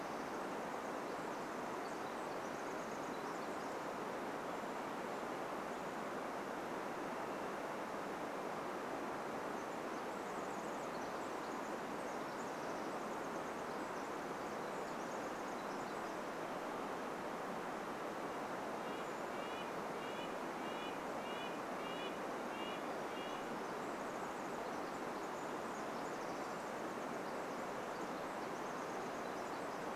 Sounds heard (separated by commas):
Pacific Wren song, Brown Creeper call, Red-breasted Nuthatch song, Varied Thrush song